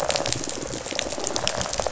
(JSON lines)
{"label": "biophony, rattle response", "recorder": "SoundTrap 500"}